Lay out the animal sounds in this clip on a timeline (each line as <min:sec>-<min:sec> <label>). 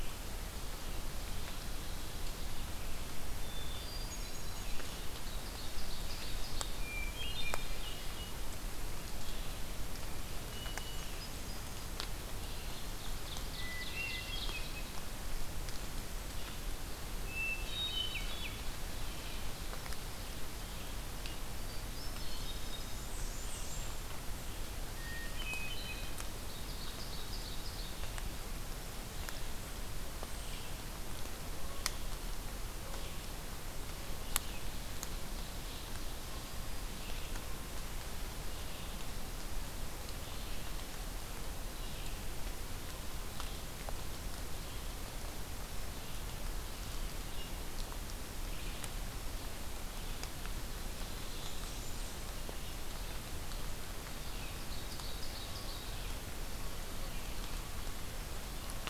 0:03.3-0:05.0 Hermit Thrush (Catharus guttatus)
0:05.0-0:06.9 Ovenbird (Seiurus aurocapilla)
0:06.6-0:08.3 Hermit Thrush (Catharus guttatus)
0:09.0-0:58.9 Red-eyed Vireo (Vireo olivaceus)
0:10.4-0:11.8 Hermit Thrush (Catharus guttatus)
0:12.2-0:15.1 Ovenbird (Seiurus aurocapilla)
0:13.4-0:15.0 Hermit Thrush (Catharus guttatus)
0:17.1-0:19.0 Hermit Thrush (Catharus guttatus)
0:21.5-0:23.1 Hermit Thrush (Catharus guttatus)
0:22.9-0:24.1 Blackburnian Warbler (Setophaga fusca)
0:24.8-0:26.3 Hermit Thrush (Catharus guttatus)
0:26.2-0:28.1 Ovenbird (Seiurus aurocapilla)
0:51.2-0:52.4 Blackburnian Warbler (Setophaga fusca)
0:54.3-0:56.2 Ovenbird (Seiurus aurocapilla)